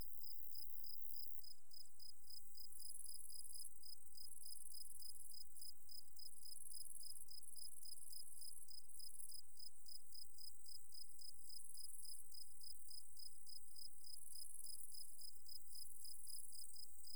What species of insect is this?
Gryllus campestris